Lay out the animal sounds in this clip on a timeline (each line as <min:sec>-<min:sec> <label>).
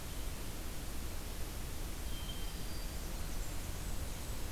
0:01.9-0:03.3 Hermit Thrush (Catharus guttatus)
0:02.8-0:04.5 Blackburnian Warbler (Setophaga fusca)